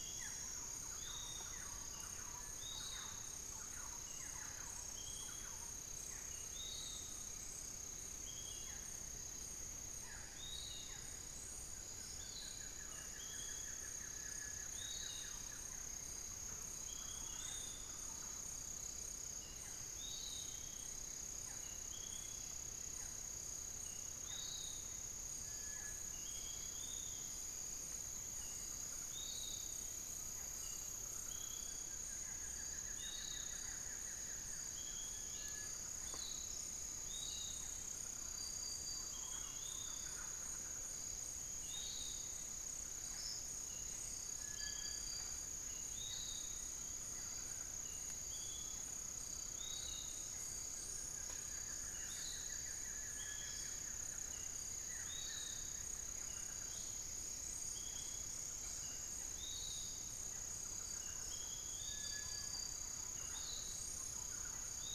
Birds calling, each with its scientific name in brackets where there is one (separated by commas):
Buff-throated Woodcreeper (Xiphorhynchus guttatus), Little Tinamou (Crypturellus soui), Thrush-like Wren (Campylorhynchus turdinus), Barred Forest-Falcon (Micrastur ruficollis), Undulated Tinamou (Crypturellus undulatus), Cinereous Tinamou (Crypturellus cinereus), Piratic Flycatcher (Legatus leucophaius), unidentified bird